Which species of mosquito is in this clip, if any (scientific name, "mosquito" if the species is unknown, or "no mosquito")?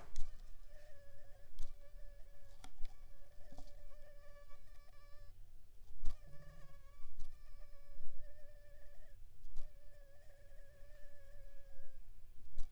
Anopheles funestus s.l.